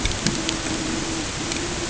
{"label": "ambient", "recorder": "HydroMoth"}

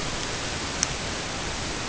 {"label": "ambient", "recorder": "HydroMoth"}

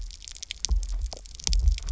{"label": "biophony, double pulse", "recorder": "SoundTrap 300"}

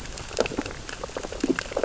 {"label": "biophony, sea urchins (Echinidae)", "recorder": "SoundTrap 600 or HydroMoth"}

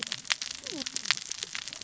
{"label": "biophony, cascading saw", "recorder": "SoundTrap 600 or HydroMoth"}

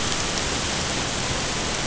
{"label": "ambient", "recorder": "HydroMoth"}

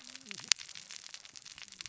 {"label": "biophony, cascading saw", "recorder": "SoundTrap 600 or HydroMoth"}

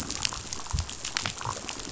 {"label": "biophony, damselfish", "recorder": "SoundTrap 500"}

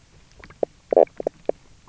{"label": "biophony, knock croak", "recorder": "SoundTrap 300"}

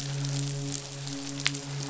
{"label": "biophony, midshipman", "recorder": "SoundTrap 500"}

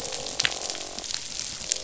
{"label": "biophony, croak", "recorder": "SoundTrap 500"}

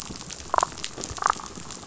{"label": "biophony, damselfish", "recorder": "SoundTrap 500"}
{"label": "biophony", "recorder": "SoundTrap 500"}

